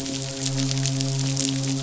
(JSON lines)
{"label": "biophony, midshipman", "recorder": "SoundTrap 500"}